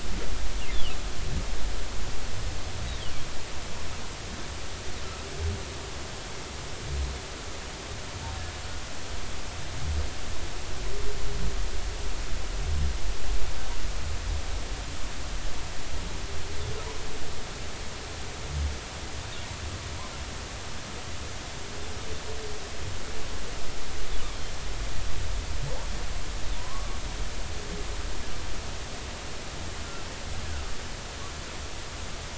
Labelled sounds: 26.6	26.9	humpback whale, 0.90 to 1.2 kHz

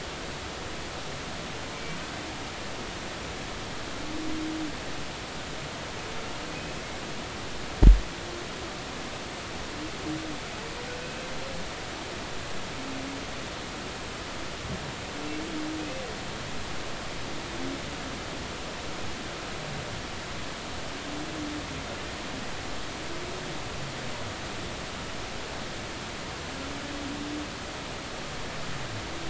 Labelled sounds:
11.0	11.3	humpback whale, 2.5 to 2.7 kHz

